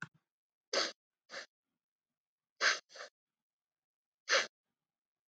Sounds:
Sniff